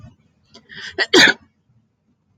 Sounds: Sneeze